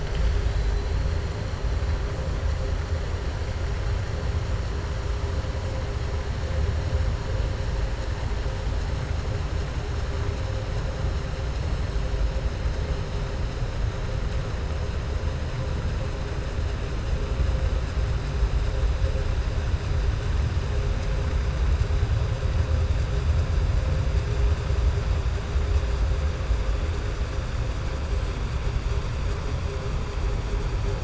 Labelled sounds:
0.0	0.9	killer whale, southern resident, 2.1 to 5.6 kHz
28.1	28.7	killer whale, southern resident, 7.6 to 8.0 kHz

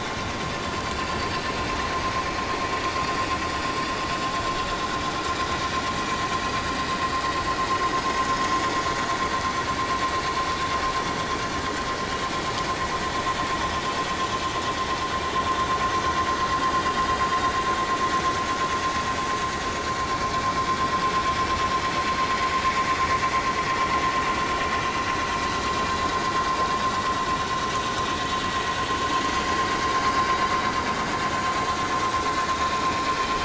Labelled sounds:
4.6	5.0	vessel noise, 3.7 to 4.0 kHz
30.1	30.5	vessel noise, 4.8 to 4.9 kHz
32.3	32.5	vessel noise, 6.9 to 7.1 kHz

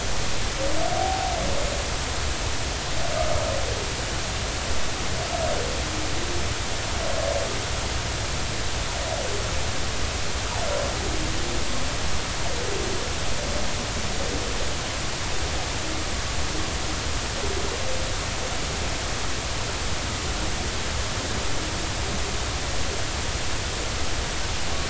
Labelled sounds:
0.9	1.3	humpback whale, 0.80 to 0.93 kHz

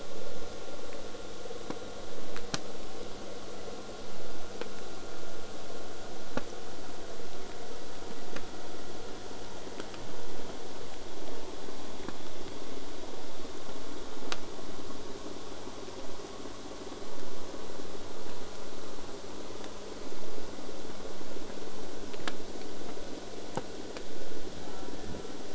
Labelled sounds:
0.0	5.0	vessel noise, 0 to 8.0 kHz
24.6	25.3	killer whale, southern resident, J pod, call S04, 0.45 to 2.5 kHz

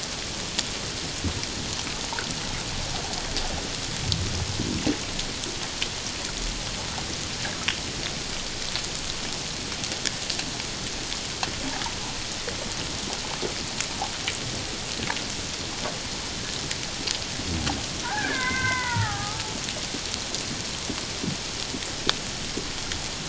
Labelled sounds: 18.0	19.5	killer whale, Bigg's (transient), 0.78 to 3.7 kHz

